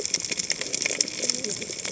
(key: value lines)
label: biophony, cascading saw
recorder: HydroMoth